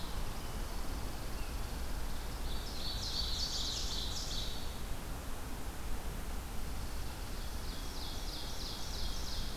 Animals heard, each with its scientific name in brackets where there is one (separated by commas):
Hooded Warbler (Setophaga citrina), Ovenbird (Seiurus aurocapilla), Chipping Sparrow (Spizella passerina)